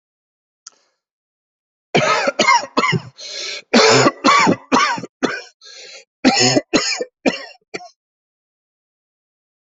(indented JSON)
{
  "expert_labels": [
    {
      "quality": "good",
      "cough_type": "wet",
      "dyspnea": false,
      "wheezing": false,
      "stridor": false,
      "choking": false,
      "congestion": false,
      "nothing": true,
      "diagnosis": "lower respiratory tract infection",
      "severity": "severe"
    }
  ],
  "age": 43,
  "gender": "male",
  "respiratory_condition": true,
  "fever_muscle_pain": true,
  "status": "symptomatic"
}